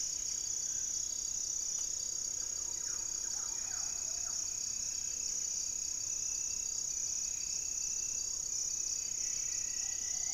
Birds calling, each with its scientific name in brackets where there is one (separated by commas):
Buff-breasted Wren (Cantorchilus leucotis), Striped Woodcreeper (Xiphorhynchus obsoletus), Plumbeous Pigeon (Patagioenas plumbea), unidentified bird, Thrush-like Wren (Campylorhynchus turdinus), Buff-throated Woodcreeper (Xiphorhynchus guttatus)